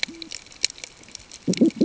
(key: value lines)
label: ambient
recorder: HydroMoth